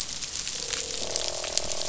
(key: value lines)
label: biophony, croak
recorder: SoundTrap 500